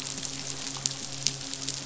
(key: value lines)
label: biophony, midshipman
recorder: SoundTrap 500

label: biophony
recorder: SoundTrap 500